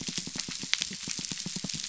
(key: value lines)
label: biophony
recorder: SoundTrap 300